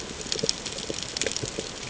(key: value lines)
label: ambient
recorder: HydroMoth